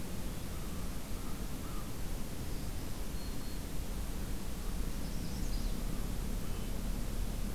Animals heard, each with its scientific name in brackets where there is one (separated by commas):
Black-throated Green Warbler (Setophaga virens), American Crow (Corvus brachyrhynchos), Magnolia Warbler (Setophaga magnolia)